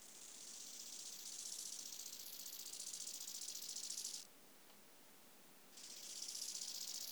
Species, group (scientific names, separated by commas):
Chorthippus biguttulus, Orthoptera